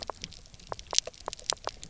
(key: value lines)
label: biophony, knock croak
recorder: SoundTrap 300